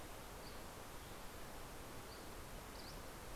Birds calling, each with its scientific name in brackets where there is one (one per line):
Dusky Flycatcher (Empidonax oberholseri)